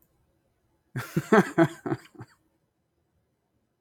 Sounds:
Laughter